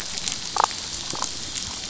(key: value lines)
label: anthrophony, boat engine
recorder: SoundTrap 500

label: biophony, damselfish
recorder: SoundTrap 500